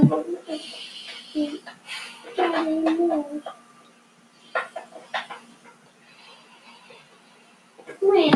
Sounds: Sigh